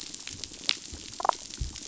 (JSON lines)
{"label": "biophony, damselfish", "recorder": "SoundTrap 500"}